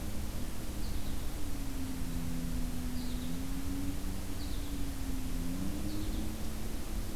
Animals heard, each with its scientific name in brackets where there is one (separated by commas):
American Goldfinch (Spinus tristis)